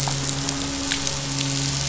{"label": "anthrophony, boat engine", "recorder": "SoundTrap 500"}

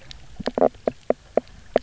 {"label": "biophony, knock croak", "recorder": "SoundTrap 300"}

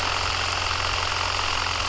{"label": "anthrophony, boat engine", "recorder": "SoundTrap 300"}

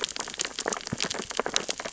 {"label": "biophony, sea urchins (Echinidae)", "recorder": "SoundTrap 600 or HydroMoth"}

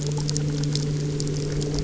{"label": "anthrophony, boat engine", "recorder": "SoundTrap 300"}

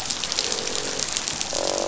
{"label": "biophony, croak", "recorder": "SoundTrap 500"}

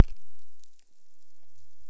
{"label": "biophony", "recorder": "SoundTrap 300"}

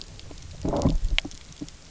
{"label": "biophony, low growl", "recorder": "SoundTrap 300"}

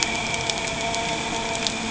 {"label": "anthrophony, boat engine", "recorder": "HydroMoth"}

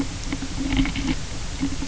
{"label": "anthrophony, boat engine", "recorder": "SoundTrap 300"}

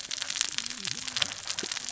{"label": "biophony, cascading saw", "recorder": "SoundTrap 600 or HydroMoth"}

